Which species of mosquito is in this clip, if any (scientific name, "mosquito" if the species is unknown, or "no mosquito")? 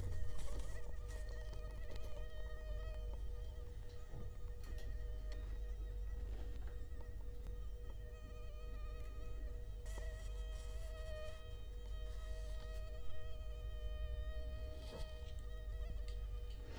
Culex quinquefasciatus